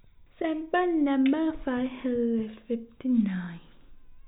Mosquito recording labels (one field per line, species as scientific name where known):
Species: no mosquito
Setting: cup